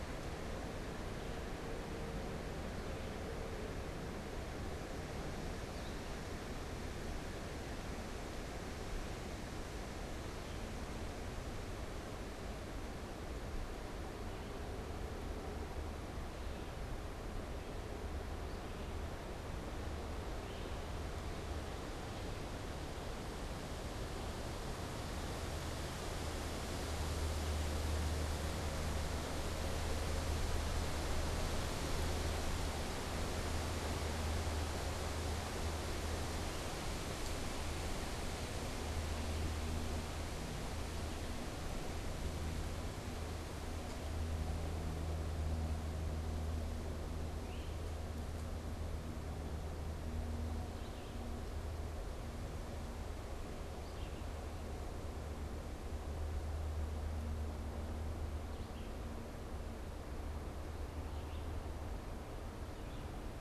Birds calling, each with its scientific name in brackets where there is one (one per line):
Red-eyed Vireo (Vireo olivaceus)
Great Crested Flycatcher (Myiarchus crinitus)